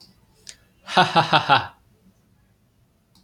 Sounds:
Laughter